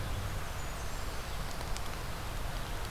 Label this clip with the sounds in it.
Blackburnian Warbler